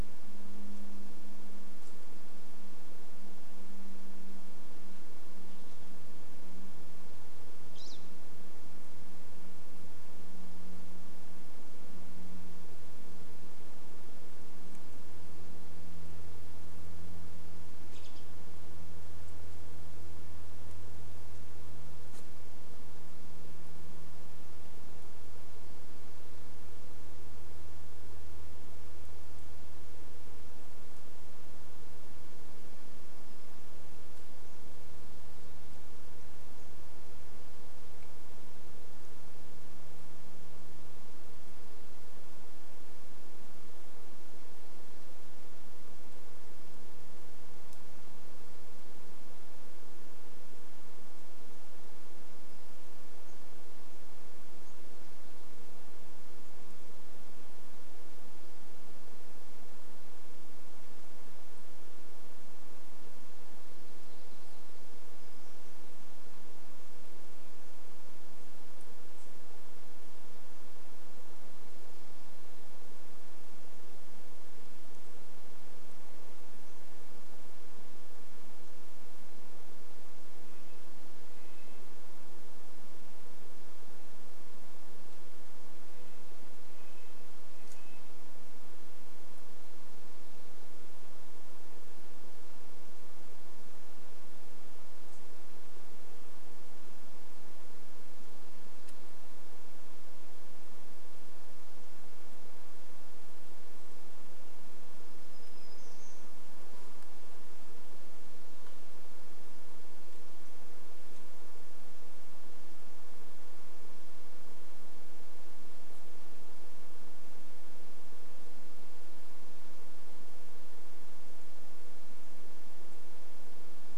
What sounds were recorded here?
airplane, Western Tanager call, Pine Siskin call, unidentified bird chip note, warbler song, Red-breasted Nuthatch song, insect buzz